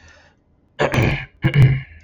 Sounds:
Throat clearing